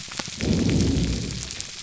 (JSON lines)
{"label": "biophony", "recorder": "SoundTrap 300"}